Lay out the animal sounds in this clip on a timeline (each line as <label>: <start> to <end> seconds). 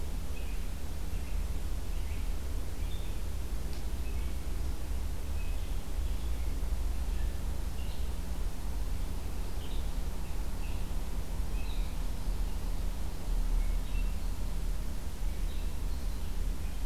Red-eyed Vireo (Vireo olivaceus): 0.0 to 8.1 seconds
Red-eyed Vireo (Vireo olivaceus): 9.4 to 16.9 seconds